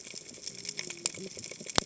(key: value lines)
label: biophony, cascading saw
recorder: HydroMoth